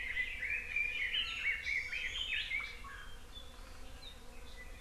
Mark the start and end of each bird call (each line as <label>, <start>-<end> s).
Red-billed Leiothrix (Leiothrix lutea), 0.0-2.5 s
Iiwi (Drepanis coccinea), 1.1-1.6 s
Hawaii Amakihi (Chlorodrepanis virens), 1.6-2.0 s